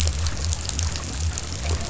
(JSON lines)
{"label": "biophony", "recorder": "SoundTrap 500"}